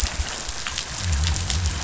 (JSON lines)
{"label": "biophony", "recorder": "SoundTrap 500"}